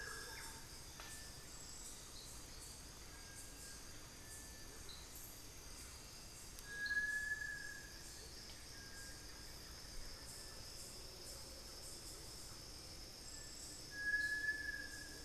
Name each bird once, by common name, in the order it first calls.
Thrush-like Wren, Little Tinamou, Cinereous Tinamou